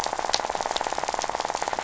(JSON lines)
{"label": "biophony, rattle", "recorder": "SoundTrap 500"}